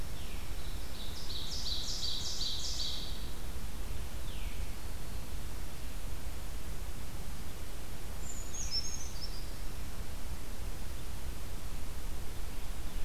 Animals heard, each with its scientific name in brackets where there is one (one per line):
Brown Creeper (Certhia americana)
Veery (Catharus fuscescens)
Ovenbird (Seiurus aurocapilla)